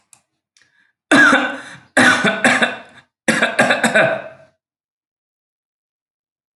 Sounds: Cough